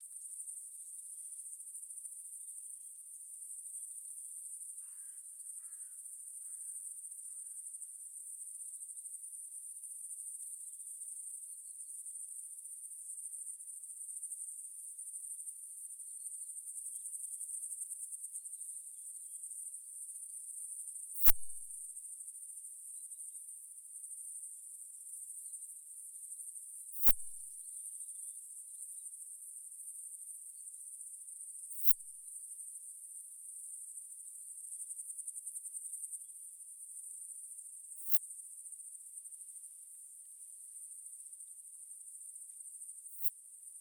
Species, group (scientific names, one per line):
Poecilimon affinis
Orthoptera